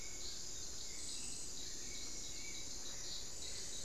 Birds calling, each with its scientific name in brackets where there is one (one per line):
Spot-winged Antshrike (Pygiptila stellaris)
Hauxwell's Thrush (Turdus hauxwelli)